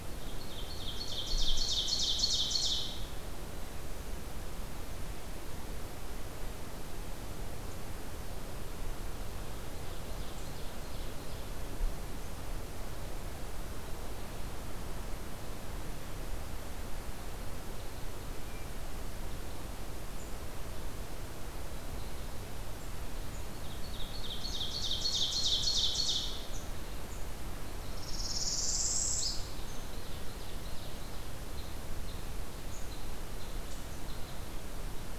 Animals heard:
Ovenbird (Seiurus aurocapilla), Red Crossbill (Loxia curvirostra), Northern Parula (Setophaga americana)

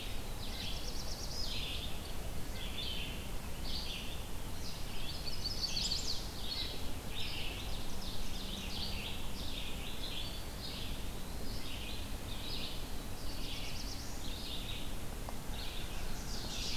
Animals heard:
Red-eyed Vireo (Vireo olivaceus), Red-breasted Nuthatch (Sitta canadensis), Eastern Wood-Pewee (Contopus virens), Ovenbird (Seiurus aurocapilla), Black-throated Blue Warbler (Setophaga caerulescens), Chestnut-sided Warbler (Setophaga pensylvanica)

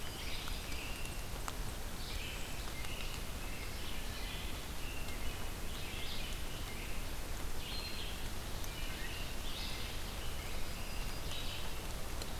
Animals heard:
Red-eyed Vireo (Vireo olivaceus), Wood Thrush (Hylocichla mustelina), American Robin (Turdus migratorius), Yellow-rumped Warbler (Setophaga coronata)

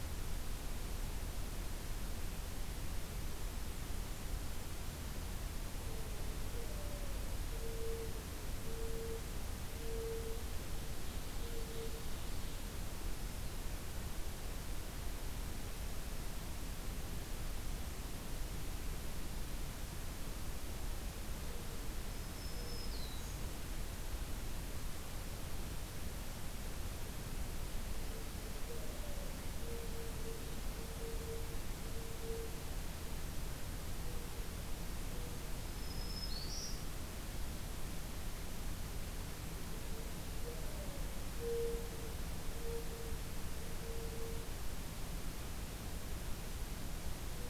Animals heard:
Ovenbird (Seiurus aurocapilla), Black-throated Green Warbler (Setophaga virens), Mourning Dove (Zenaida macroura)

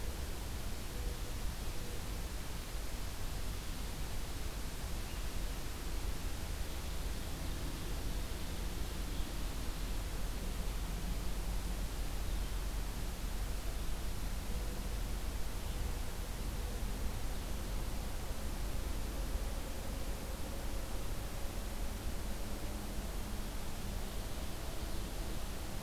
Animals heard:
Ovenbird (Seiurus aurocapilla), Mourning Dove (Zenaida macroura)

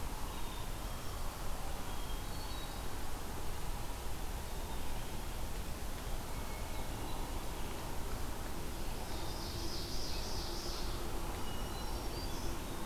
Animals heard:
Black-throated Green Warbler (Setophaga virens), Ovenbird (Seiurus aurocapilla), Hermit Thrush (Catharus guttatus), Black-capped Chickadee (Poecile atricapillus)

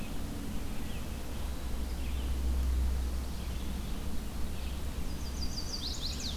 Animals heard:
Chestnut-sided Warbler (Setophaga pensylvanica), Red-eyed Vireo (Vireo olivaceus)

